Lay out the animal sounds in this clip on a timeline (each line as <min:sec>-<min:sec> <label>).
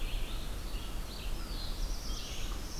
0:00.0-0:02.8 Red-eyed Vireo (Vireo olivaceus)
0:00.0-0:02.8 unknown mammal
0:00.9-0:02.5 Black-throated Blue Warbler (Setophaga caerulescens)